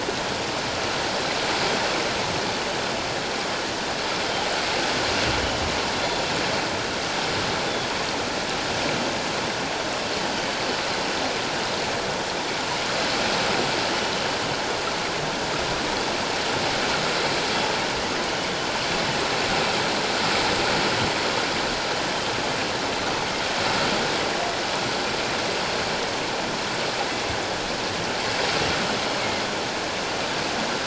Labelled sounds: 6.0	6.2	killer whale, northern resident, G clan, 3.4 to 3.6 kHz

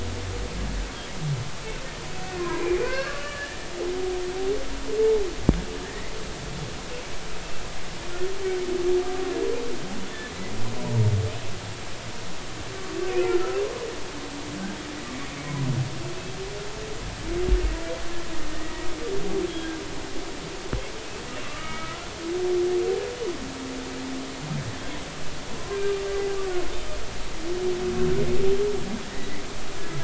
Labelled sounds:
2.4	3.6	humpback whale, 0.93 to 2.8 kHz
5.0	6.1	humpback whale, 0.80 to 2.1 kHz
18.5	18.9	humpback whale, 1.8 to 2.0 kHz
19.5	19.8	humpback whale, 1.5 to 1.7 kHz
21.4	22.1	humpback whale, 1.1 to 2.3 kHz
25.7	26.0	humpback whale, 1.5 to 1.7 kHz

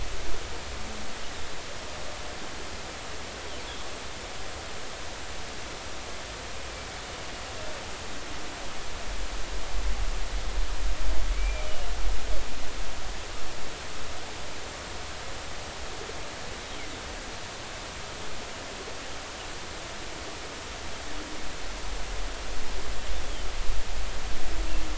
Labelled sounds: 11.3	11.7	humpback whale, 2.2 to 2.5 kHz

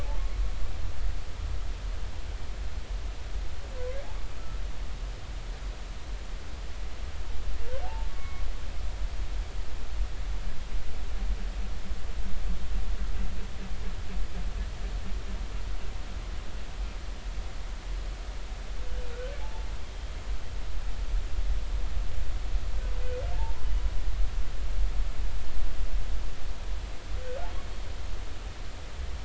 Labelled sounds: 7.8	8.5	humpback whale, 0.80 to 2.2 kHz
19.1	20.1	humpback whale, 0.80 to 3.3 kHz

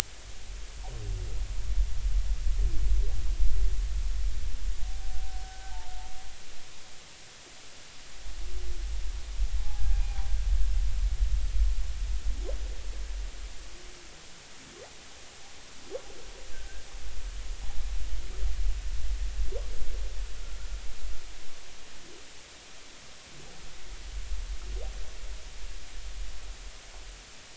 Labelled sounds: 5.4	5.9	humpback whale, 0.80 to 1.6 kHz
9.6	10.2	humpback whale, 0.80 to 2.5 kHz

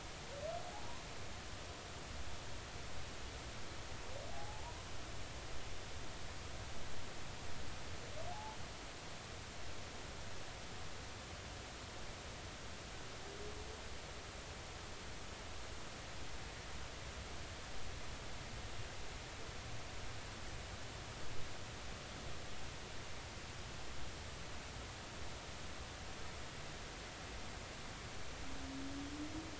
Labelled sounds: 4.3	4.8	humpback whale, 0.80 to 1.0 kHz
8.3	8.6	humpback whale, 0.80 to 0.93 kHz

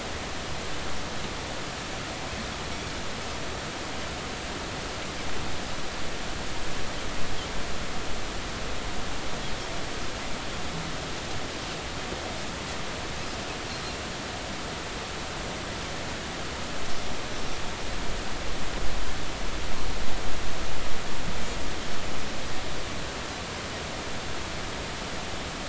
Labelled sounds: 13.7	14.0	Pacific white-sided dolphin, 4.1 to 4.3 kHz

